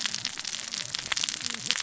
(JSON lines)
{"label": "biophony, cascading saw", "recorder": "SoundTrap 600 or HydroMoth"}